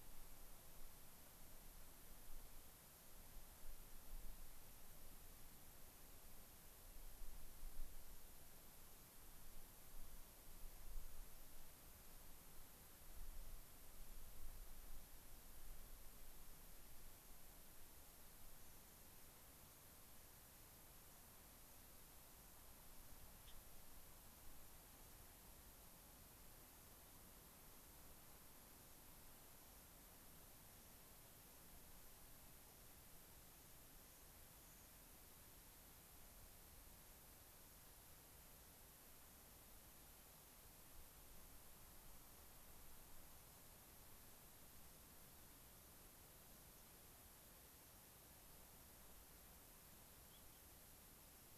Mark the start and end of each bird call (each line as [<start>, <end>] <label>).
[23.37, 23.57] Gray-crowned Rosy-Finch (Leucosticte tephrocotis)
[33.47, 34.97] American Pipit (Anthus rubescens)